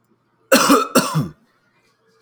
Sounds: Cough